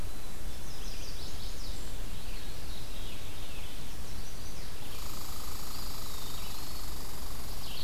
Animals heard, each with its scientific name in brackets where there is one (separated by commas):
Eastern Wood-Pewee (Contopus virens), Red Squirrel (Tamiasciurus hudsonicus), Red-eyed Vireo (Vireo olivaceus), Black-capped Chickadee (Poecile atricapillus), Chestnut-sided Warbler (Setophaga pensylvanica), Veery (Catharus fuscescens)